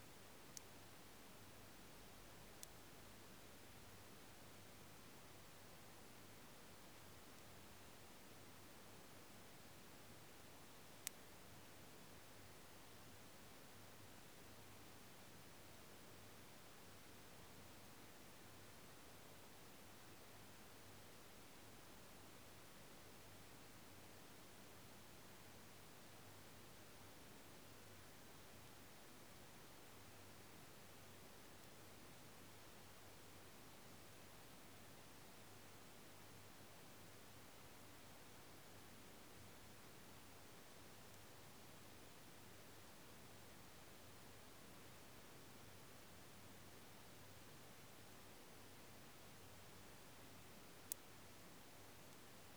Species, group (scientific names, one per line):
Canariola emarginata
Orthoptera